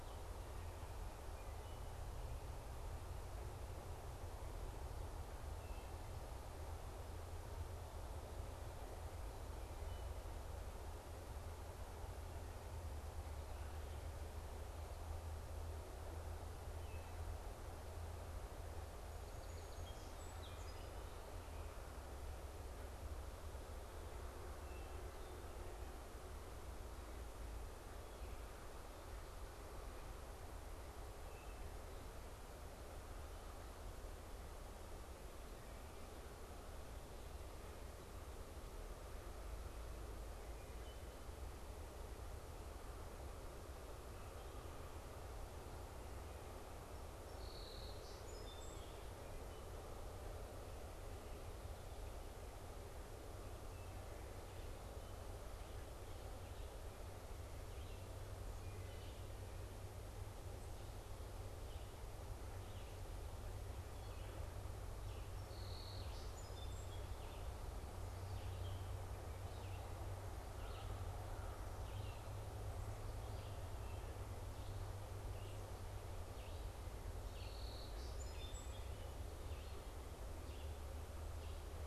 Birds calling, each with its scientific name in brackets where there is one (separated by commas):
Wood Thrush (Hylocichla mustelina), Song Sparrow (Melospiza melodia), Red-eyed Vireo (Vireo olivaceus), American Crow (Corvus brachyrhynchos)